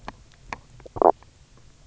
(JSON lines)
{"label": "biophony, stridulation", "recorder": "SoundTrap 300"}